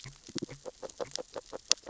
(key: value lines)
label: biophony, grazing
recorder: SoundTrap 600 or HydroMoth